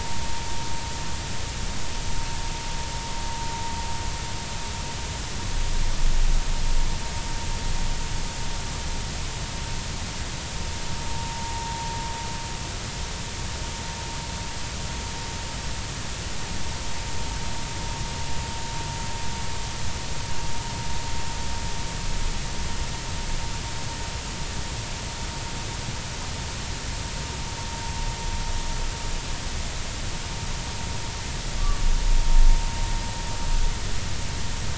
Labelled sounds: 11.1	11.4	vessel noise, 0.90 to 0.96 kHz
31.6	31.8	humpback whale, 1.1 to 1.2 kHz

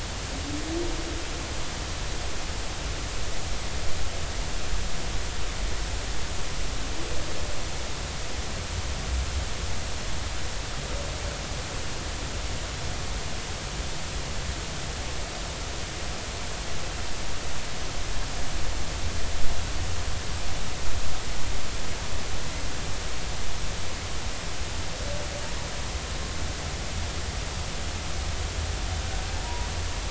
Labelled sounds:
29.4	29.7	humpback whale, 0.90 to 1.0 kHz

